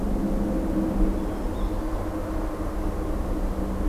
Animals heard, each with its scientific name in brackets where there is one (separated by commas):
Blue-headed Vireo (Vireo solitarius), Black-throated Green Warbler (Setophaga virens), Blue Jay (Cyanocitta cristata)